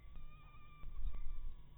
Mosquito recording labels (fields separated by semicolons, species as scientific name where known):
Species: mosquito; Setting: cup